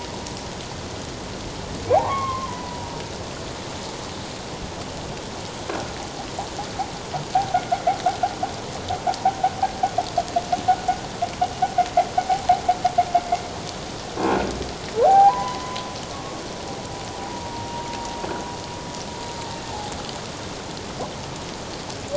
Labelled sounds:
1.9	2.9	humpback whale, 0.78 to 2.2 kHz
7.3	7.8	humpback whale, 0.78 to 2.3 kHz
14.2	14.5	humpback whale, 2.3 to 2.7 kHz
15.0	16.4	humpback whale, 0.78 to 1.6 kHz
17.2	17.9	humpback whale, 0.78 to 1.0 kHz

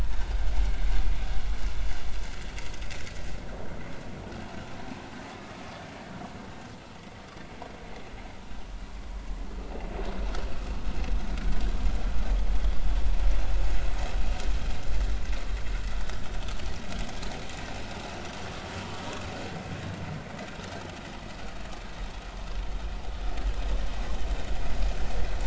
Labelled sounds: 5.4	5.6	vessel noise, 1.1 to 1.3 kHz

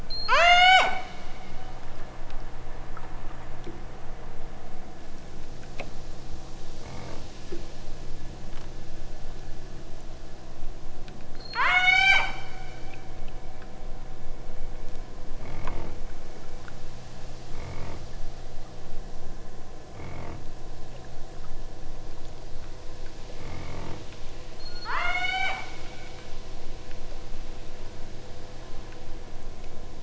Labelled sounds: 0.0	0.9	killer whale, southern Alaska resident, 0.27 to 8.0 kHz
11.4	12.3	killer whale, southern Alaska resident, 0.41 to 8.0 kHz
24.6	25.7	killer whale, southern Alaska resident, 0.34 to 8.0 kHz

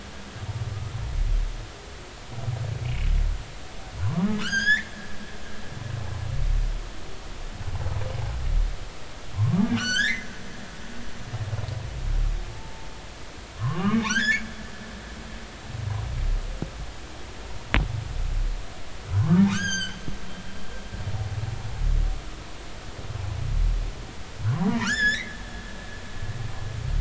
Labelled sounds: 4.0	4.9	humpback whale, 0.93 to 7.2 kHz
9.3	10.3	humpback whale, 0.90 to 6.7 kHz
12.5	12.9	humpback whale, 0.83 to 0.93 kHz
13.6	14.4	humpback whale, 0.83 to 7.2 kHz
19.1	20.0	humpback whale, 0.96 to 8.0 kHz
24.4	25.3	humpback whale, 0.90 to 7.2 kHz

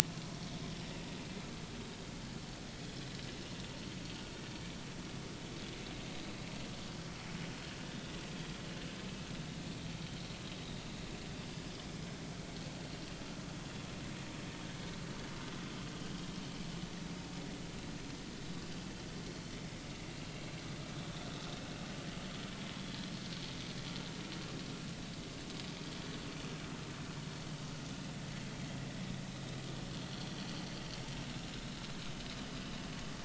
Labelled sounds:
19.3	19.6	vessel noise, 4.3 to 4.4 kHz
31.5	31.8	vessel noise, 3.7 to 4.0 kHz

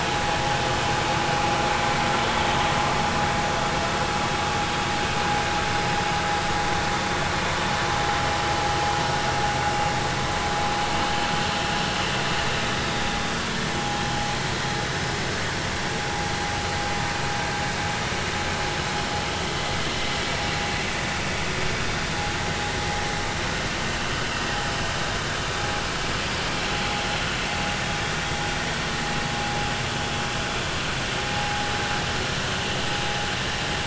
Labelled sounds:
31.4	31.7	vessel noise, 0.80 to 0.90 kHz

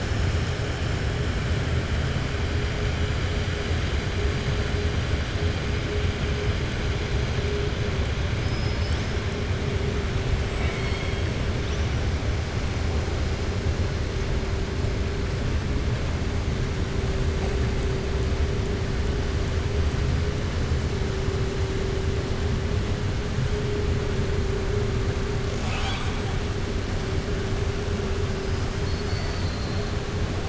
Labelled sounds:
8.4	9.1	killer whale, southern resident, 4.4 to 7.9 kHz
10.4	11.2	killer whale, southern resident, 1.3 to 8.0 kHz
25.4	26.3	killer whale, southern resident, 0.77 to 7.9 kHz

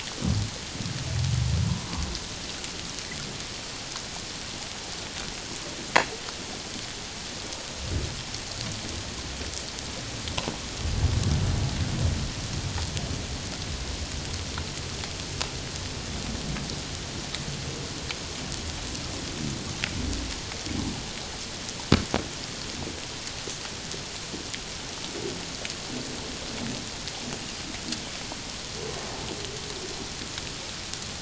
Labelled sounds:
1.7	2.0	humpback whale, 0.84 to 1.2 kHz

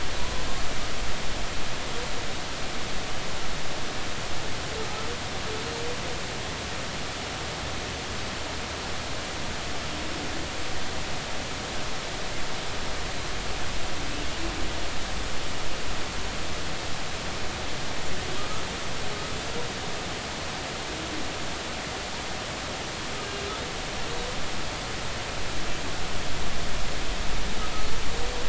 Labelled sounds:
0.2	0.4	humpback whale, 0.93 to 1.1 kHz

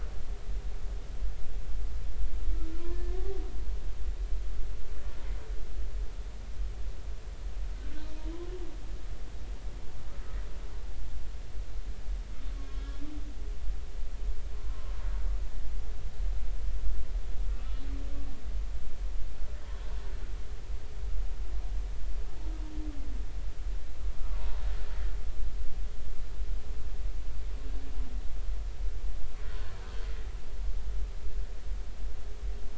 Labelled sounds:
2.9	3.1	humpback whale, 1.7 to 1.8 kHz
12.5	13.0	humpback whale, 1.0 to 3.4 kHz
14.5	14.9	humpback whale, 0.99 to 1.1 kHz

